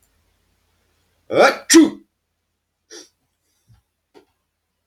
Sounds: Sneeze